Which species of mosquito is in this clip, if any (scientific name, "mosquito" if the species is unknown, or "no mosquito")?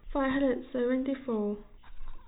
no mosquito